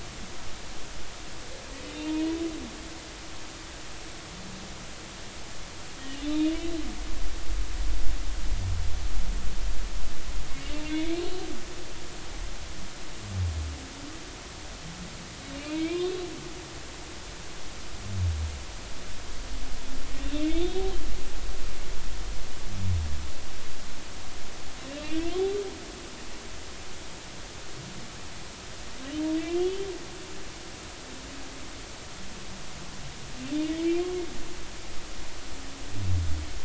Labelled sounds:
2.0	2.3	humpback whale, 0.90 to 0.99 kHz
6.2	6.7	humpback whale, 2.8 to 3.8 kHz
10.9	11.2	humpback whale, 2.1 to 3.6 kHz
15.6	16.2	humpback whale, 2.2 to 3.8 kHz
20.2	20.8	humpback whale, 3.2 to 3.8 kHz
25.0	25.2	humpback whale, 2.6 to 2.9 kHz
29.4	29.9	humpback whale, 2.6 to 3.5 kHz
33.8	34.1	humpback whale, 2.2 to 3.3 kHz

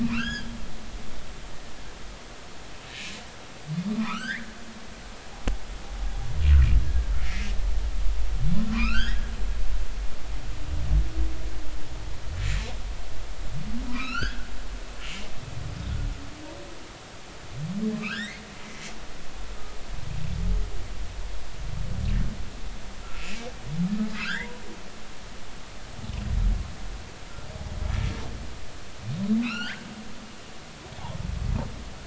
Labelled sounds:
0.0	0.5	humpback whale, 1.2 to 5.2 kHz
3.9	4.6	humpback whale, 0.93 to 3.6 kHz
7.3	7.5	humpback whale, 2.0 to 2.2 kHz
8.7	9.2	humpback whale, 0.96 to 3.5 kHz
13.9	14.5	humpback whale, 0.93 to 6.2 kHz
15.0	15.3	humpback whale, 2.8 to 2.9 kHz
18.0	18.4	humpback whale, 1.2 to 5.8 kHz
23.0	23.5	humpback whale, 1.3 to 2.8 kHz
24.1	24.6	humpback whale, 0.90 to 2.2 kHz
29.4	29.8	humpback whale, 1.2 to 4.9 kHz

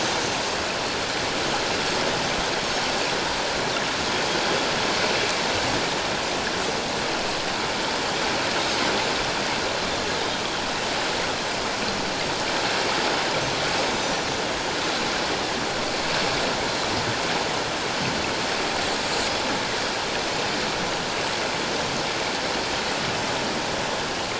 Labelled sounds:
1.8	2.1	Pacific white-sided dolphin, 7.4 to 7.8 kHz

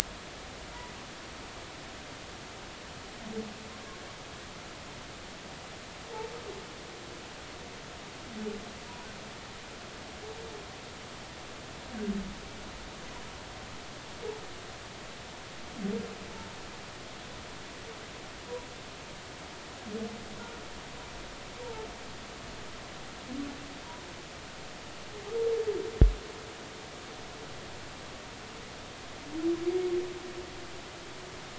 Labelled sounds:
21.6	21.9	humpback whale, 0.83 to 0.96 kHz

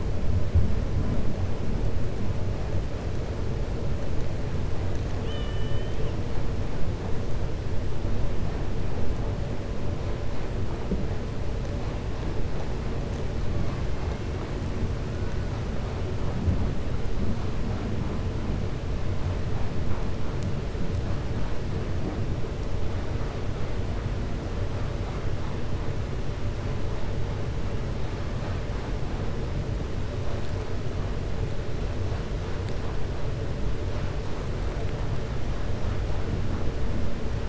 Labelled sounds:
5.1	6.1	killer whale, 1.2 to 3.7 kHz

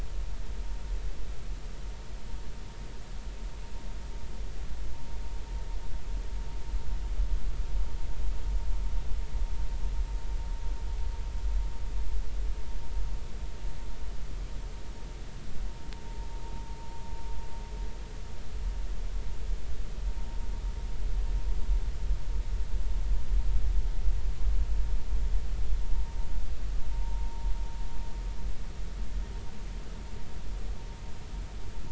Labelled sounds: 27.9	28.3	vessel noise, 0.86 to 1.0 kHz

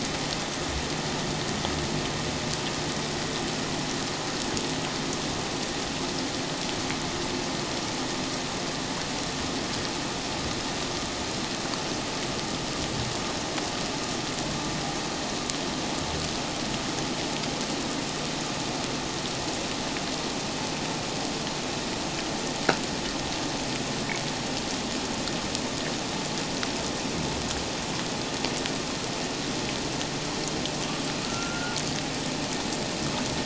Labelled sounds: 31.2	31.8	humpback whale, 1.2 to 1.5 kHz

